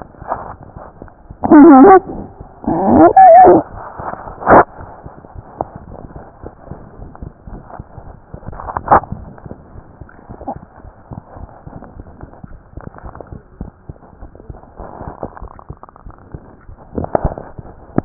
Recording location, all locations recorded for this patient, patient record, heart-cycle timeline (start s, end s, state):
pulmonary valve (PV)
pulmonary valve (PV)+tricuspid valve (TV)+mitral valve (MV)
#Age: Child
#Sex: Female
#Height: 109.0 cm
#Weight: 22.5 kg
#Pregnancy status: False
#Murmur: Unknown
#Murmur locations: nan
#Most audible location: nan
#Systolic murmur timing: nan
#Systolic murmur shape: nan
#Systolic murmur grading: nan
#Systolic murmur pitch: nan
#Systolic murmur quality: nan
#Diastolic murmur timing: nan
#Diastolic murmur shape: nan
#Diastolic murmur grading: nan
#Diastolic murmur pitch: nan
#Diastolic murmur quality: nan
#Outcome: Abnormal
#Campaign: 2015 screening campaign
0.00	6.42	unannotated
6.42	6.58	S1
6.58	6.70	systole
6.70	6.80	S2
6.80	7.00	diastole
7.00	7.12	S1
7.12	7.20	systole
7.20	7.34	S2
7.34	7.49	diastole
7.49	7.66	S1
7.66	7.78	systole
7.78	7.88	S2
7.88	8.04	diastole
8.04	8.18	S1
8.18	8.32	systole
8.32	8.42	S2
8.42	9.71	unannotated
9.71	9.86	S1
9.86	9.99	systole
9.99	10.10	S2
10.10	10.28	diastole
10.28	10.41	S1
10.41	10.52	systole
10.52	10.64	S2
10.64	10.82	diastole
10.82	10.96	S1
10.96	11.10	systole
11.10	11.22	S2
11.22	11.38	diastole
11.38	11.52	S1
11.52	11.64	systole
11.64	11.74	S2
11.74	11.94	diastole
11.94	12.08	S1
12.08	12.19	systole
12.19	12.32	S2
12.32	12.48	diastole
12.48	12.62	S1
12.62	12.72	systole
12.72	12.86	S2
12.86	13.01	diastole
13.01	13.14	S1
13.14	13.26	systole
13.26	13.40	S2
13.40	13.56	diastole
13.56	13.72	S1
13.72	13.84	systole
13.84	13.98	S2
13.98	14.18	diastole
14.18	14.31	S1
14.31	18.05	unannotated